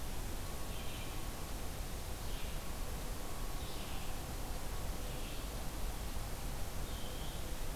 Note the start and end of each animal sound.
0.0s-4.4s: Red-eyed Vireo (Vireo olivaceus)
4.9s-7.8s: Red-eyed Vireo (Vireo olivaceus)

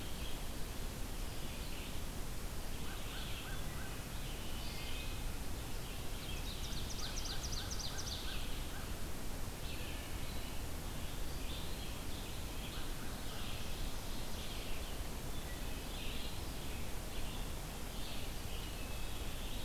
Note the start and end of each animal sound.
0.0s-19.6s: Red-eyed Vireo (Vireo olivaceus)
2.7s-4.3s: American Crow (Corvus brachyrhynchos)
4.2s-5.4s: Wood Thrush (Hylocichla mustelina)
6.1s-8.5s: Ovenbird (Seiurus aurocapilla)
7.0s-9.0s: American Crow (Corvus brachyrhynchos)
9.7s-10.4s: Wood Thrush (Hylocichla mustelina)
12.5s-13.8s: American Crow (Corvus brachyrhynchos)
12.8s-14.7s: Ovenbird (Seiurus aurocapilla)
15.3s-15.9s: Wood Thrush (Hylocichla mustelina)
18.6s-19.4s: Wood Thrush (Hylocichla mustelina)

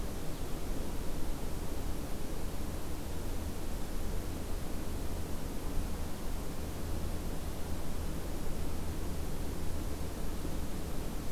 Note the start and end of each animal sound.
0.0s-0.7s: American Goldfinch (Spinus tristis)

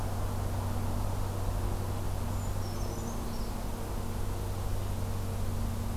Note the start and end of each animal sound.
2.2s-3.7s: Brown Creeper (Certhia americana)

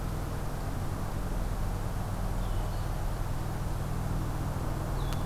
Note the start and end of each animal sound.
0.0s-5.3s: Blue-headed Vireo (Vireo solitarius)

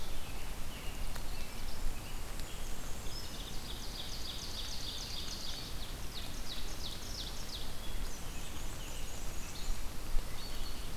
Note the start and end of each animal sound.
0.0s-2.8s: American Robin (Turdus migratorius)
1.9s-3.5s: Black-and-white Warbler (Mniotilta varia)
3.2s-7.8s: Ovenbird (Seiurus aurocapilla)
7.8s-9.9s: American Robin (Turdus migratorius)
8.1s-10.0s: Black-and-white Warbler (Mniotilta varia)
10.2s-10.9s: unidentified call

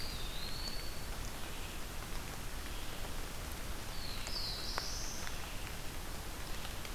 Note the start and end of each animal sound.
0.0s-1.1s: Eastern Wood-Pewee (Contopus virens)
0.0s-6.9s: Red-eyed Vireo (Vireo olivaceus)
3.6s-5.4s: Black-throated Blue Warbler (Setophaga caerulescens)

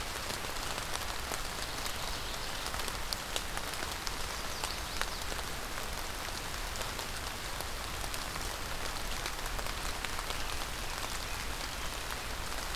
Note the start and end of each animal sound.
1.0s-2.5s: Ovenbird (Seiurus aurocapilla)
4.0s-5.4s: Chestnut-sided Warbler (Setophaga pensylvanica)

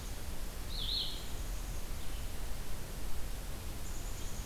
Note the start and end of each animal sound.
0.0s-4.5s: Red-eyed Vireo (Vireo olivaceus)
1.1s-1.9s: Black-capped Chickadee (Poecile atricapillus)
3.6s-4.5s: Black-capped Chickadee (Poecile atricapillus)

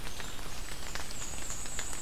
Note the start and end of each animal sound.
0.0s-0.9s: Blackburnian Warbler (Setophaga fusca)
0.7s-2.0s: Black-and-white Warbler (Mniotilta varia)

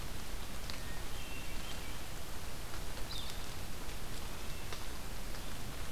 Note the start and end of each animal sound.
0.5s-2.3s: Hermit Thrush (Catharus guttatus)
4.0s-4.9s: Red-breasted Nuthatch (Sitta canadensis)

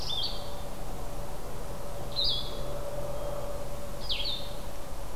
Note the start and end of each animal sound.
0.0s-5.2s: Blue-headed Vireo (Vireo solitarius)

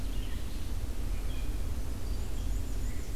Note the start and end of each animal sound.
0.0s-3.2s: Red-eyed Vireo (Vireo olivaceus)
2.1s-3.2s: Black-and-white Warbler (Mniotilta varia)

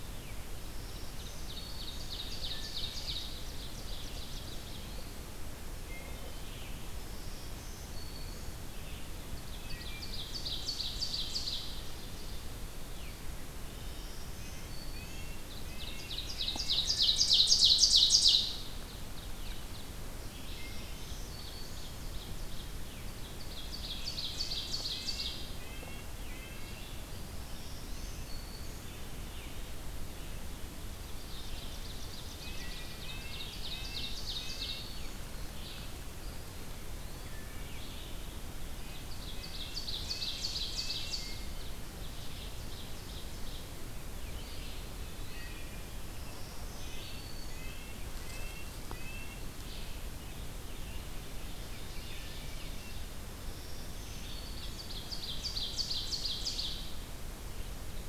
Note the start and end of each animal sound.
0.4s-2.1s: Black-throated Green Warbler (Setophaga virens)
1.1s-5.1s: Ovenbird (Seiurus aurocapilla)
2.4s-3.2s: Wood Thrush (Hylocichla mustelina)
5.7s-6.4s: Wood Thrush (Hylocichla mustelina)
6.9s-8.6s: Black-throated Green Warbler (Setophaga virens)
9.0s-12.6s: Ovenbird (Seiurus aurocapilla)
9.5s-10.1s: Wood Thrush (Hylocichla mustelina)
13.5s-17.6s: Red-breasted Nuthatch (Sitta canadensis)
13.7s-15.5s: Black-throated Green Warbler (Setophaga virens)
15.5s-20.0s: Ovenbird (Seiurus aurocapilla)
20.3s-22.1s: Black-throated Green Warbler (Setophaga virens)
20.8s-25.5s: Ovenbird (Seiurus aurocapilla)
24.3s-26.9s: Red-breasted Nuthatch (Sitta canadensis)
27.3s-29.0s: Black-throated Green Warbler (Setophaga virens)
31.1s-35.2s: Ovenbird (Seiurus aurocapilla)
32.3s-33.0s: Wood Thrush (Hylocichla mustelina)
36.2s-37.3s: Eastern Wood-Pewee (Contopus virens)
37.1s-38.1s: Wood Thrush (Hylocichla mustelina)
38.7s-41.5s: Red-breasted Nuthatch (Sitta canadensis)
38.8s-41.6s: Ovenbird (Seiurus aurocapilla)
42.0s-43.8s: Ovenbird (Seiurus aurocapilla)
45.0s-45.9s: Wood Thrush (Hylocichla mustelina)
46.2s-47.8s: Black-throated Green Warbler (Setophaga virens)
46.7s-49.5s: Red-breasted Nuthatch (Sitta canadensis)
51.4s-53.3s: Ovenbird (Seiurus aurocapilla)
53.3s-54.7s: Black-throated Green Warbler (Setophaga virens)
54.1s-57.2s: Ovenbird (Seiurus aurocapilla)

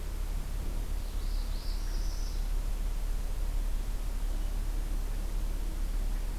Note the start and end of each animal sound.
0.8s-2.7s: Northern Parula (Setophaga americana)

